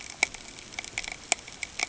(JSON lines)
{"label": "ambient", "recorder": "HydroMoth"}